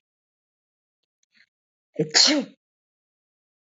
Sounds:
Sneeze